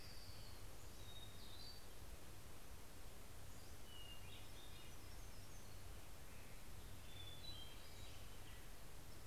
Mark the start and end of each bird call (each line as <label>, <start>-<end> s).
Orange-crowned Warbler (Leiothlypis celata), 0.0-1.6 s
Hermit Thrush (Catharus guttatus), 0.8-2.5 s
Pacific-slope Flycatcher (Empidonax difficilis), 3.0-4.2 s
Hermit Thrush (Catharus guttatus), 3.6-5.8 s
Hermit Warbler (Setophaga occidentalis), 3.7-7.0 s
Hermit Thrush (Catharus guttatus), 6.8-8.9 s
Pacific-slope Flycatcher (Empidonax difficilis), 7.7-9.0 s